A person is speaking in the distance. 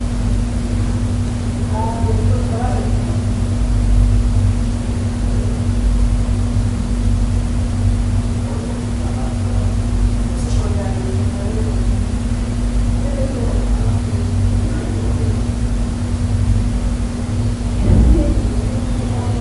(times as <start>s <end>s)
1.6s 3.2s, 8.2s 11.9s, 12.8s 15.3s